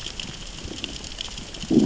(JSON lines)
{"label": "biophony, growl", "recorder": "SoundTrap 600 or HydroMoth"}